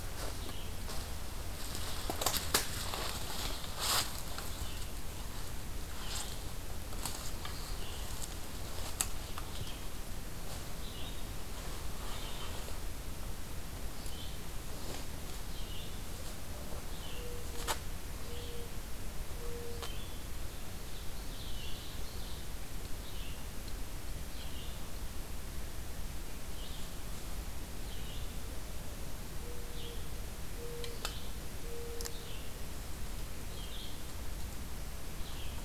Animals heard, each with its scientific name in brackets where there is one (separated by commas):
Ovenbird (Seiurus aurocapilla), Red-eyed Vireo (Vireo olivaceus)